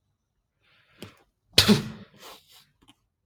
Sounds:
Sneeze